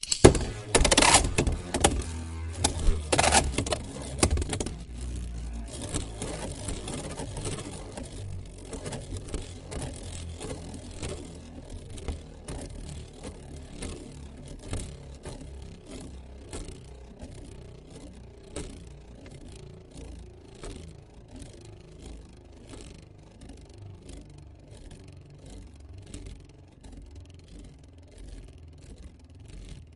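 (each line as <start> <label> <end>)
0.1 The spinning Beyblade hits a hard surface. 4.5
5.8 A Beyblade spinning. 25.2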